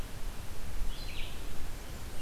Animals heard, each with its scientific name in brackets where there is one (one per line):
Red-eyed Vireo (Vireo olivaceus)